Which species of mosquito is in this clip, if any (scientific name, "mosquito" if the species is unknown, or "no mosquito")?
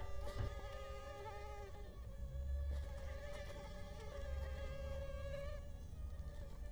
Culex quinquefasciatus